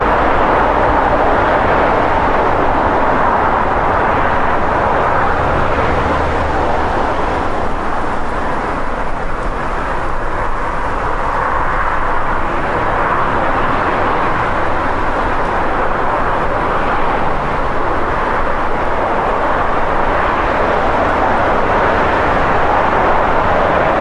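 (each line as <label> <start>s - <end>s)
Many cars are driving fast on a street. 0.0s - 24.0s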